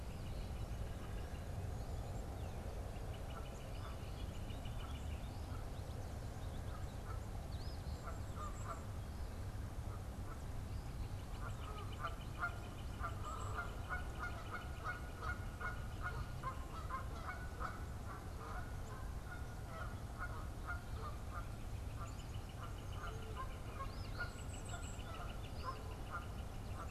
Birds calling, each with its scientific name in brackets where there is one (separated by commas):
Golden-crowned Kinglet (Regulus satrapa), Northern Flicker (Colaptes auratus), Eastern Phoebe (Sayornis phoebe), Canada Goose (Branta canadensis), unidentified bird